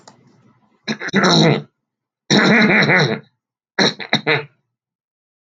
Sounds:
Throat clearing